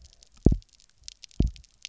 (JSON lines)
{"label": "biophony, double pulse", "recorder": "SoundTrap 300"}